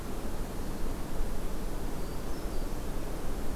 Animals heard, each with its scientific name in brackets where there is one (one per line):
Hermit Thrush (Catharus guttatus)